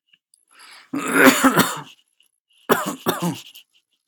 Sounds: Cough